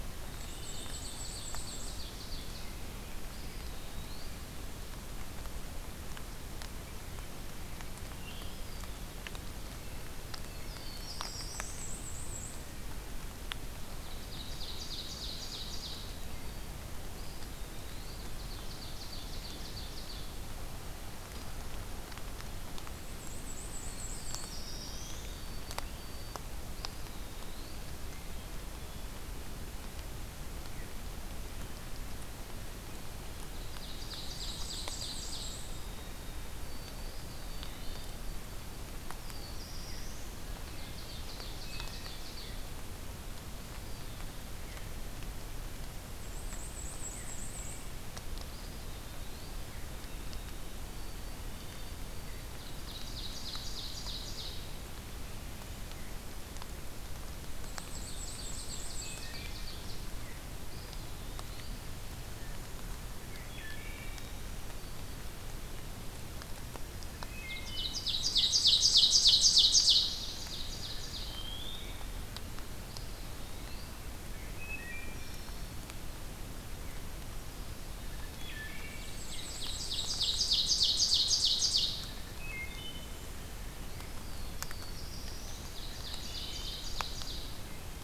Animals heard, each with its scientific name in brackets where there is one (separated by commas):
Wood Thrush (Hylocichla mustelina), Veery (Catharus fuscescens), Black-throated Blue Warbler (Setophaga caerulescens), White-throated Sparrow (Zonotrichia albicollis), Ovenbird (Seiurus aurocapilla), Eastern Wood-Pewee (Contopus virens), Black-and-white Warbler (Mniotilta varia)